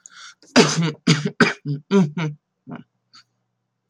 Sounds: Throat clearing